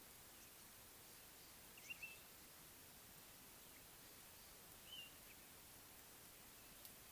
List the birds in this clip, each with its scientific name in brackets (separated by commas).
Blue-naped Mousebird (Urocolius macrourus)